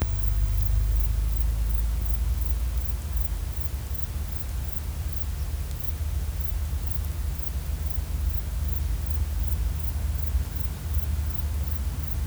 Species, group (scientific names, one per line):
Platycleis albopunctata
Orthoptera